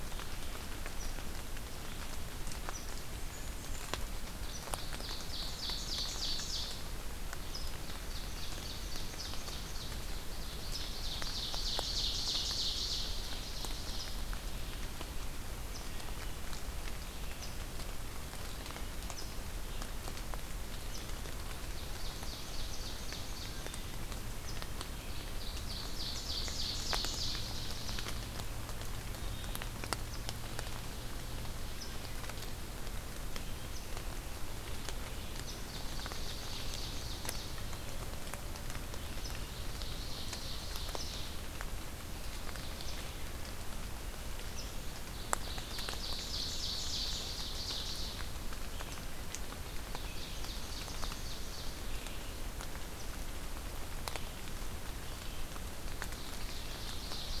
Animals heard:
Red-eyed Vireo (Vireo olivaceus)
Blackburnian Warbler (Setophaga fusca)
Eastern Chipmunk (Tamias striatus)
Wood Thrush (Hylocichla mustelina)
Ovenbird (Seiurus aurocapilla)

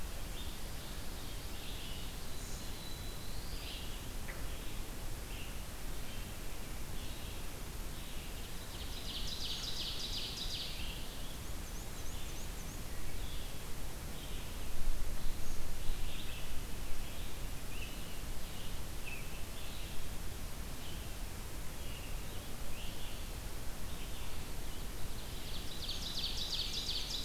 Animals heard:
Black-throated Blue Warbler (Setophaga caerulescens)
Red-eyed Vireo (Vireo olivaceus)
Ovenbird (Seiurus aurocapilla)
Black-and-white Warbler (Mniotilta varia)

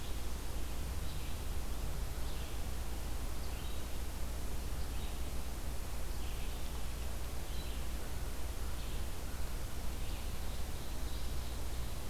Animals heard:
Red-eyed Vireo (Vireo olivaceus)
Ovenbird (Seiurus aurocapilla)

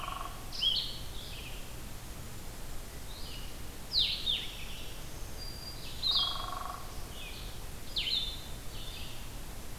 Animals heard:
Black-throated Green Warbler (Setophaga virens)
Blue-headed Vireo (Vireo solitarius)
Red-eyed Vireo (Vireo olivaceus)
Hairy Woodpecker (Dryobates villosus)

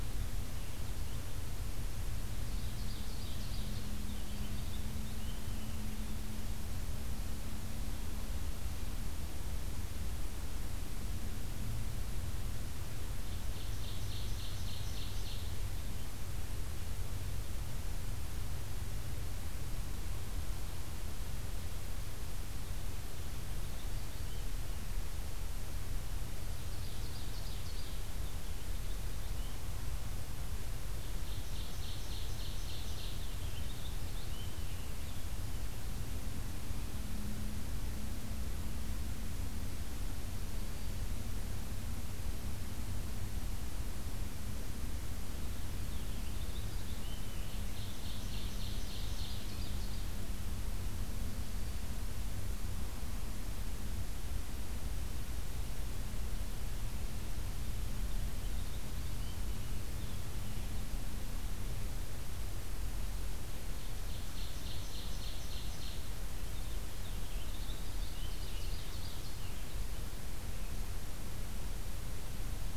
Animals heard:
Purple Finch (Haemorhous purpureus)
Ovenbird (Seiurus aurocapilla)
Black-throated Green Warbler (Setophaga virens)

